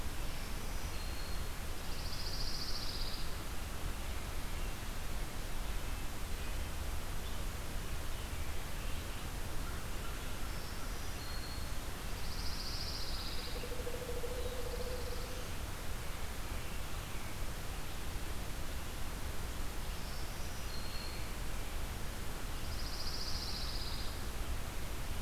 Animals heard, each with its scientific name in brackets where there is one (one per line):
American Crow (Corvus brachyrhynchos)
Pileated Woodpecker (Dryocopus pileatus)
Black-throated Green Warbler (Setophaga virens)
Pine Warbler (Setophaga pinus)